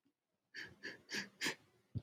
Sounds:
Sniff